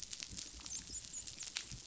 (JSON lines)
{"label": "biophony, dolphin", "recorder": "SoundTrap 500"}